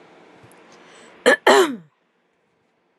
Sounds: Throat clearing